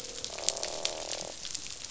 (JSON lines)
{"label": "biophony, croak", "recorder": "SoundTrap 500"}